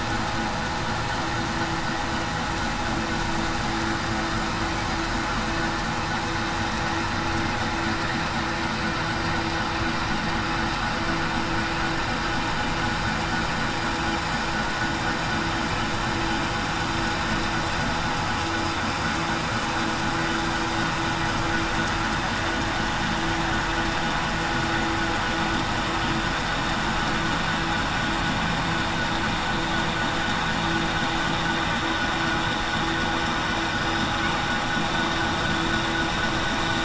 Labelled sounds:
33.7	34.1	killer whale, southern resident, 4.9 to 5.1 kHz

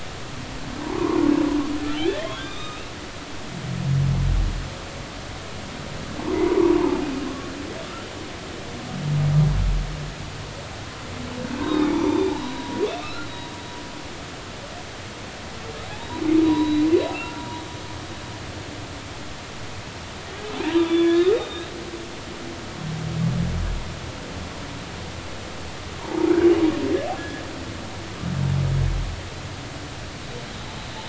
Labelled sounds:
0.8	1.2	humpback whale, 0.80 to 1.2 kHz
2.0	2.9	humpback whale, 1.2 to 3.8 kHz
6.2	7.0	humpback whale, 0.80 to 1.2 kHz
11.6	13.3	humpback whale, 0.83 to 4.3 kHz
16.4	17.5	humpback whale, 0.90 to 4.0 kHz
20.6	21.7	humpback whale, 0.86 to 3.8 kHz
25.9	26.3	humpback whale, 0.80 to 1.1 kHz
27.2	27.4	humpback whale, 1.6 to 1.9 kHz

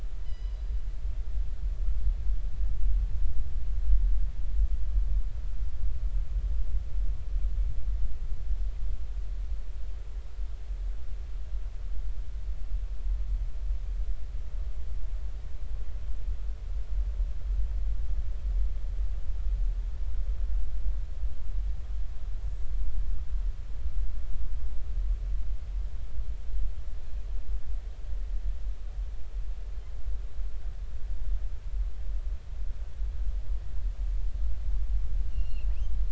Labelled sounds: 0.2	0.6	killer whale, northern resident, 1.9 to 5.1 kHz
35.3	35.7	killer whale, northern resident, 2.5 to 4.4 kHz

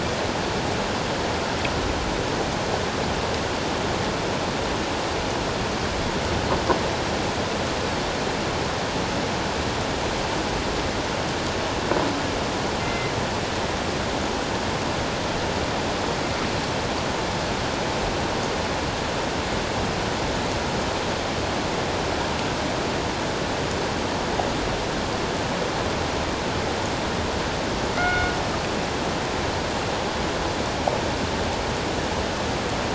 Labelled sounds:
12.8	13.1	killer whale, northern resident, G clan, call N24ii, 2.0 to 2.1 kHz
28.0	28.3	killer whale, northern resident, G clan, call N24ii, 1.3 to 2.2 kHz

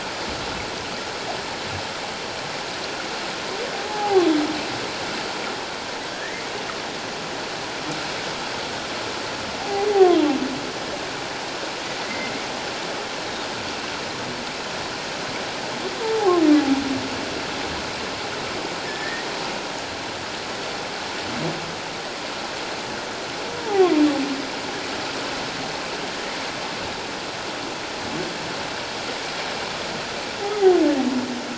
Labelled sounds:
3.7	4.2	humpback whale, 0.78 to 0.94 kHz
6.1	6.5	humpback whale, 1.5 to 2.2 kHz
9.6	9.9	humpback whale, 0.78 to 0.84 kHz
12.0	12.3	humpback whale, 1.9 to 2.1 kHz
16.0	16.3	humpback whale, 0.78 to 1.1 kHz
18.8	19.3	humpback whale, 1.7 to 1.9 kHz
23.6	23.9	humpback whale, 0.78 to 0.94 kHz

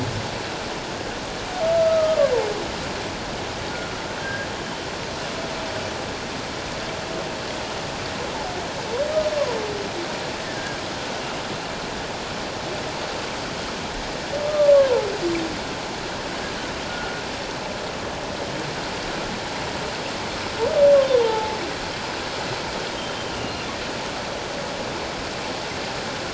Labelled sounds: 1.7	2.3	humpback whale, 1.0 to 1.5 kHz
4.2	4.5	humpback whale, 1.5 to 1.7 kHz
14.4	15.1	humpback whale, 0.81 to 1.2 kHz
16.9	17.2	humpback whale, 1.4 to 1.5 kHz
21.2	21.6	humpback whale, 0.81 to 0.97 kHz

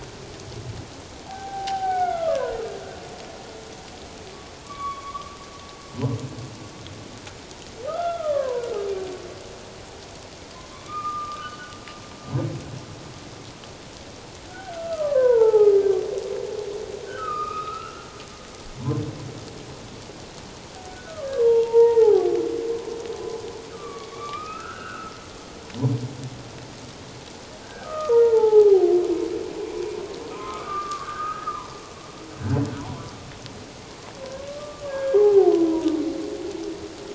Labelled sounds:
1.3	2.6	humpback whale, 0.78 to 2.3 kHz
4.6	5.4	humpback whale, 1.0 to 3.5 kHz
7.9	8.6	humpback whale, 0.91 to 3.5 kHz
10.7	11.7	humpback whale, 1.0 to 3.0 kHz
14.5	15.8	humpback whale, 0.78 to 1.9 kHz
17.1	17.9	humpback whale, 1.1 to 2.7 kHz
20.9	22.3	humpback whale, 0.78 to 3.3 kHz
23.7	25.1	humpback whale, 1.1 to 2.8 kHz
27.6	29.0	humpback whale, 0.78 to 1.7 kHz
30.3	31.8	humpback whale, 0.84 to 1.8 kHz
34.5	35.9	humpback whale, 0.78 to 1.7 kHz

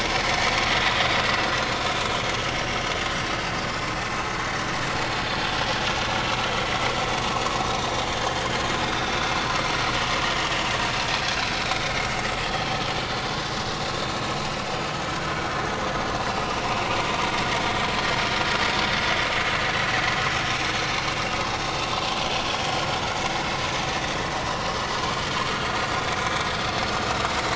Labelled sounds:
2.5	2.8	vessel noise, 5.3 to 5.8 kHz
8.2	8.4	vessel noise, 1.5 to 1.9 kHz
15.8	16.0	vessel noise, 6.5 to 6.6 kHz
22.5	22.7	vessel noise, 3.2 to 3.4 kHz
26.7	27.0	vessel noise, 5.2 to 5.3 kHz

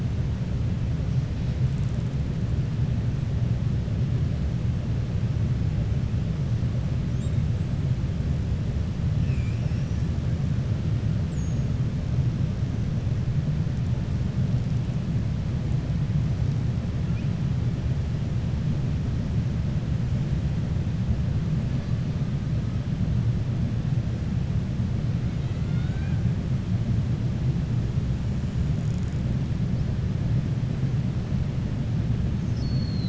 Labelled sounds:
9.1	9.5	killer whale, 1.8 to 3.1 kHz
25.3	26.2	killer whale, 0.76 to 4.4 kHz

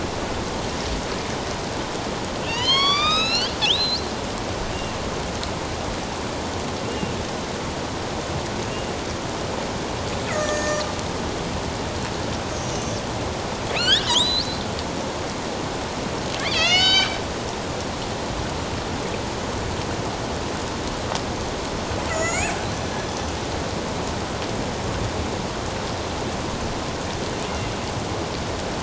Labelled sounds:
2.4	4.1	killer whale, northern resident, A clan, AB subclan, 0.97 to 8.0 kHz
6.8	7.2	killer whale, northern resident, A clan, AB subclan, 2.6 to 2.9 kHz
10.3	10.8	killer whale, northern resident, A clan, AB subclan, 1.2 to 7.2 kHz
12.5	13.0	killer whale, northern resident, A clan, AB subclan, 5.6 to 6.7 kHz
13.7	14.6	killer whale, northern resident, A clan, AB subclan, 1.2 to 8.0 kHz
16.4	17.2	killer whale, northern resident, A clan, AB subclan, 1.2 to 7.0 kHz
22.1	22.5	killer whale, northern resident, A clan, AB subclan, 1.2 to 7.8 kHz

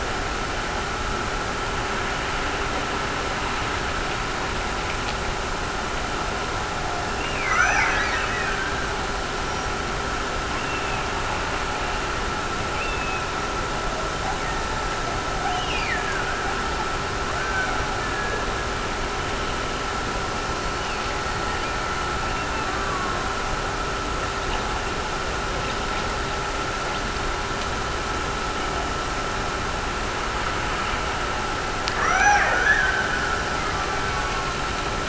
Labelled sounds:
7.2	9.0	killer whale, Bigg's (transient), Gulf of Alaska transient, 0.59 to 6.1 kHz
15.5	16.7	killer whale, Bigg's (transient), Gulf of Alaska transient, 1.3 to 6.3 kHz
17.3	18.7	killer whale, Bigg's (transient), Gulf of Alaska transient, 1.1 to 1.8 kHz
20.7	22.7	killer whale, Bigg's (transient), Gulf of Alaska transient, 1.6 to 3.0 kHz
32.0	34.6	killer whale, Bigg's (transient), Gulf of Alaska transient, 0.44 to 6.1 kHz

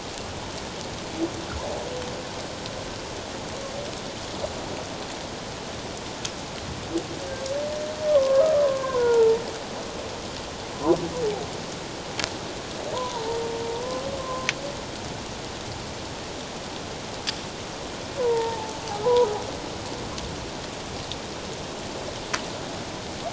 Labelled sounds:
8.1	9.4	humpback whale, 0.84 to 1.6 kHz
12.9	13.4	humpback whale, 0.84 to 1.1 kHz
14.2	14.5	humpback whale, 0.97 to 1.1 kHz
18.2	19.3	humpback whale, 0.78 to 1.1 kHz

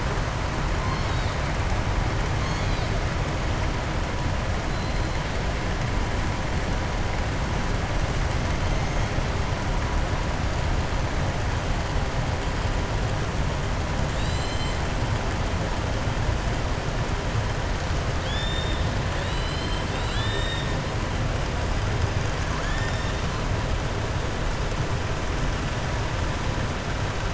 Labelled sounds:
14.0	14.8	killer whale, southern resident, 2.7 to 7.9 kHz
18.1	18.8	killer whale, southern resident, 3.2 to 7.3 kHz
19.1	20.7	killer whale, southern resident, 1.7 to 7.7 kHz

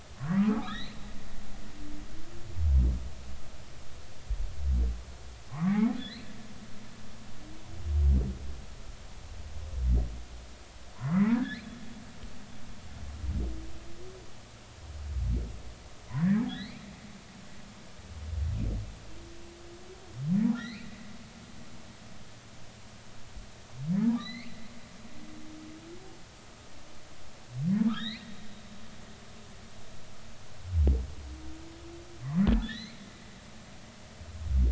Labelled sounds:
0.1	1.0	humpback whale, 0.93 to 4.4 kHz
5.5	5.9	humpback whale, 0.96 to 2.4 kHz
11.0	11.7	humpback whale, 0.90 to 2.4 kHz
16.1	16.8	humpback whale, 1.6 to 4.4 kHz
20.6	20.9	humpback whale, 1.7 to 4.4 kHz
24.2	24.5	humpback whale, 1.7 to 4.4 kHz
27.9	28.3	humpback whale, 1.1 to 4.5 kHz
32.5	33.0	humpback whale, 1.6 to 4.4 kHz

